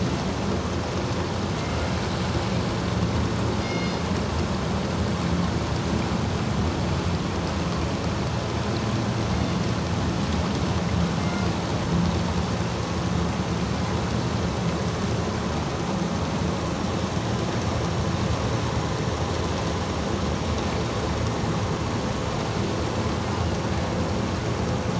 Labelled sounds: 3.6	4.1	killer whale, northern resident, G clan, 2.1 to 5.8 kHz
11.2	11.5	killer whale, northern resident, G clan, 2.1 to 2.2 kHz

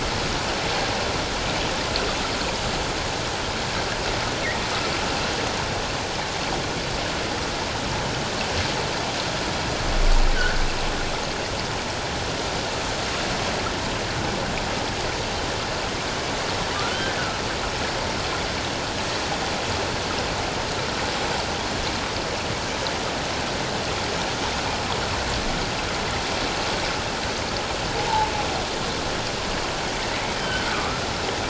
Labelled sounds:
16.8	17.2	humpback whale, 1.1 to 1.6 kHz
30.4	31.0	humpback whale, 1.1 to 3.2 kHz

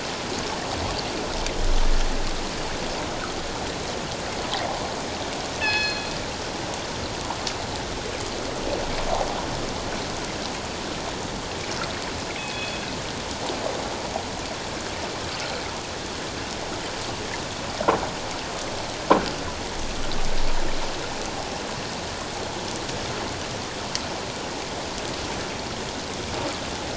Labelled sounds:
5.6	6.1	killer whale, northern resident, G clan, call N24ii, 1.6 to 5.2 kHz
12.4	12.8	killer whale, northern resident, G clan, call N24ii, 2.5 to 3.5 kHz

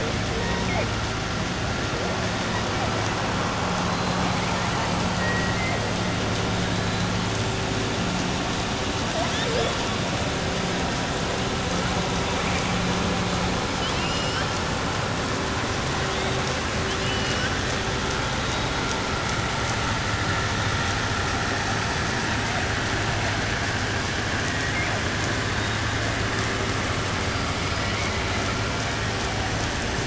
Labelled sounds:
5.1	5.8	killer whale, southern resident, 1.0 to 2.2 kHz
13.7	14.5	killer whale, southern resident, 1.5 to 5.8 kHz
16.8	17.5	killer whale, southern resident, 1.5 to 6.3 kHz

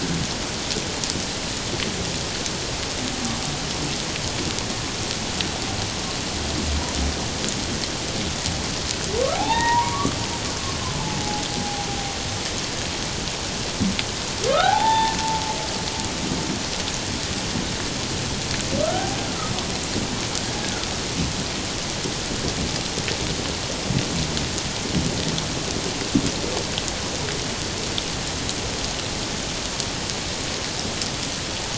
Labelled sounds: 9.3	10.2	humpback whale, 0.78 to 3.8 kHz
11.2	11.9	humpback whale, 0.78 to 0.88 kHz
14.5	15.2	humpback whale, 0.78 to 3.6 kHz
18.8	19.2	humpback whale, 0.78 to 1.6 kHz

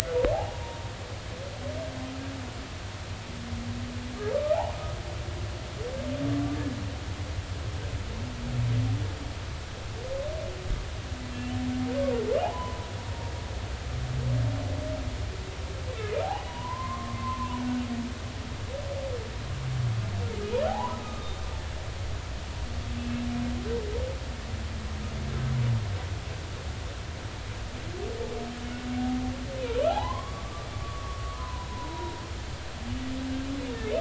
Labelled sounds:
0.5	0.9	humpback whale, 0.90 to 1.0 kHz
12.4	13.3	humpback whale, 0.80 to 1.1 kHz
16.2	17.6	humpback whale, 0.80 to 1.2 kHz
20.7	21.5	humpback whale, 0.80 to 3.7 kHz
23.0	23.3	humpback whale, 2.6 to 2.7 kHz
29.9	32.2	humpback whale, 0.80 to 3.9 kHz

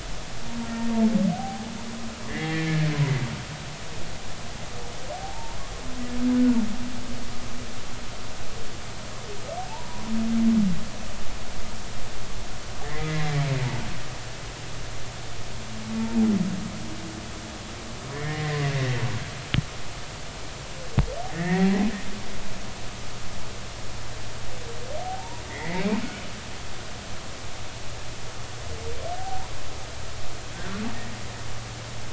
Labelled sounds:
0.7	1.7	humpback whale, 0.80 to 2.0 kHz
2.3	2.9	humpback whale, 1.6 to 2.3 kHz
5.2	5.6	humpback whale, 0.80 to 0.99 kHz
9.7	10.0	humpback whale, 0.83 to 1.1 kHz
12.8	13.3	humpback whale, 1.7 to 2.2 kHz
18.1	18.6	humpback whale, 1.7 to 2.2 kHz
21.3	21.9	humpback whale, 0.80 to 2.4 kHz
25.0	26.0	humpback whale, 0.80 to 2.6 kHz
29.1	29.5	humpback whale, 0.80 to 1.0 kHz

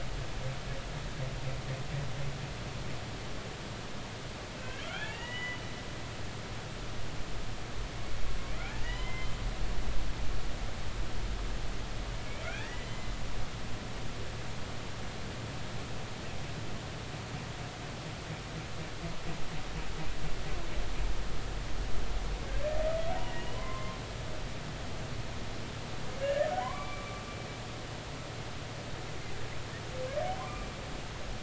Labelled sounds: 4.6	5.6	humpback whale, 1.3 to 3.5 kHz
8.8	9.3	humpback whale, 0.93 to 5.2 kHz
12.7	13.0	humpback whale, 2.9 to 3.1 kHz
13.4	14.1	humpback whale, 1.3 to 2.1 kHz
23.3	24.0	humpback whale, 0.96 to 3.1 kHz
26.2	27.2	humpback whale, 0.93 to 2.4 kHz
30.4	30.7	humpback whale, 0.96 to 1.2 kHz

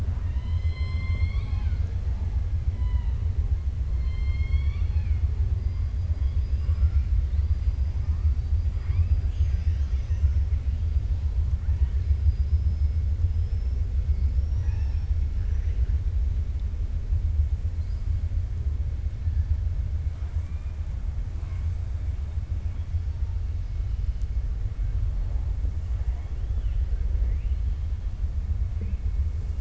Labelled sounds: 0.0	2.3	killer whale, 0.50 to 6.3 kHz
3.9	5.2	killer whale, 1.1 to 5.4 kHz
6.1	7.0	killer whale, 3.3 to 5.5 kHz
9.2	10.4	killer whale, 1.4 to 6.8 kHz
13.2	13.8	killer whale, 5.0 to 5.7 kHz
14.1	15.2	killer whale, 0.80 to 5.8 kHz
20.1	20.8	killer whale, 0.70 to 2.5 kHz

